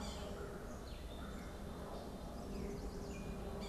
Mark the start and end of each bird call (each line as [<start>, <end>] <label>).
[0.00, 3.69] Black-capped Chickadee (Poecile atricapillus)
[0.00, 3.69] Gray Catbird (Dumetella carolinensis)
[0.00, 3.69] Yellow-bellied Sapsucker (Sphyrapicus varius)
[1.99, 3.38] Chestnut-sided Warbler (Setophaga pensylvanica)